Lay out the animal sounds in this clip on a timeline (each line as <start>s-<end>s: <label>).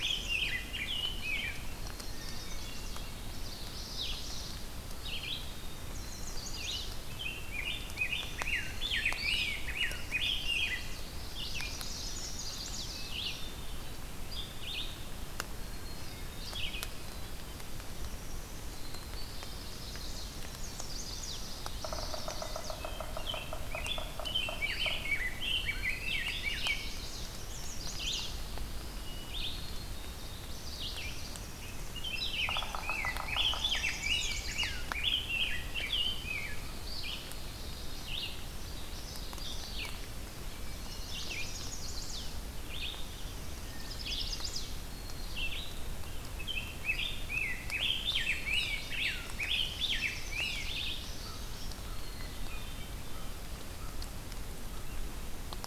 0.0s-1.9s: Rose-breasted Grosbeak (Pheucticus ludovicianus)
0.0s-16.9s: Red-eyed Vireo (Vireo olivaceus)
1.8s-2.6s: Black-capped Chickadee (Poecile atricapillus)
1.8s-3.1s: Chestnut-sided Warbler (Setophaga pensylvanica)
2.0s-3.2s: Hermit Thrush (Catharus guttatus)
3.2s-4.5s: Common Yellowthroat (Geothlypis trichas)
4.9s-7.0s: Black-capped Chickadee (Poecile atricapillus)
5.7s-6.9s: Chestnut-sided Warbler (Setophaga pensylvanica)
7.1s-11.0s: Rose-breasted Grosbeak (Pheucticus ludovicianus)
8.5s-9.3s: Black-capped Chickadee (Poecile atricapillus)
9.4s-13.0s: Chestnut-sided Warbler (Setophaga pensylvanica)
15.5s-16.5s: Black-capped Chickadee (Poecile atricapillus)
18.6s-19.9s: Black-capped Chickadee (Poecile atricapillus)
18.9s-22.9s: Chestnut-sided Warbler (Setophaga pensylvanica)
21.6s-25.1s: Yellow-bellied Sapsucker (Sphyrapicus varius)
22.8s-26.8s: Rose-breasted Grosbeak (Pheucticus ludovicianus)
25.6s-26.4s: Black-capped Chickadee (Poecile atricapillus)
26.2s-28.3s: Chestnut-sided Warbler (Setophaga pensylvanica)
27.8s-45.8s: Red-eyed Vireo (Vireo olivaceus)
29.0s-29.6s: Hermit Thrush (Catharus guttatus)
29.3s-30.5s: Black-capped Chickadee (Poecile atricapillus)
30.2s-31.3s: Common Yellowthroat (Geothlypis trichas)
31.7s-36.6s: Rose-breasted Grosbeak (Pheucticus ludovicianus)
32.0s-35.0s: Chestnut-sided Warbler (Setophaga pensylvanica)
32.3s-34.2s: Yellow-bellied Sapsucker (Sphyrapicus varius)
35.7s-36.7s: Black-capped Chickadee (Poecile atricapillus)
36.9s-38.2s: Common Yellowthroat (Geothlypis trichas)
37.1s-38.0s: Black-capped Chickadee (Poecile atricapillus)
38.6s-39.9s: Common Yellowthroat (Geothlypis trichas)
40.7s-41.6s: Black-capped Chickadee (Poecile atricapillus)
41.0s-42.3s: Chestnut-sided Warbler (Setophaga pensylvanica)
43.6s-44.8s: Chestnut-sided Warbler (Setophaga pensylvanica)
43.6s-44.6s: Hermit Thrush (Catharus guttatus)
44.8s-45.8s: Black-capped Chickadee (Poecile atricapillus)
46.3s-51.1s: Rose-breasted Grosbeak (Pheucticus ludovicianus)
48.1s-49.1s: Black-capped Chickadee (Poecile atricapillus)
49.3s-50.7s: Chestnut-sided Warbler (Setophaga pensylvanica)
50.6s-51.8s: Common Yellowthroat (Geothlypis trichas)
51.2s-54.9s: American Crow (Corvus brachyrhynchos)
51.7s-52.9s: Black-capped Chickadee (Poecile atricapillus)
52.4s-53.3s: Hermit Thrush (Catharus guttatus)